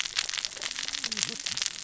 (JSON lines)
{"label": "biophony, cascading saw", "recorder": "SoundTrap 600 or HydroMoth"}